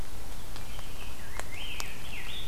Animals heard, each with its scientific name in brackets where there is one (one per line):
Rose-breasted Grosbeak (Pheucticus ludovicianus)